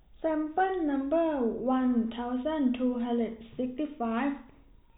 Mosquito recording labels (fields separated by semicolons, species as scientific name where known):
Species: no mosquito; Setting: cup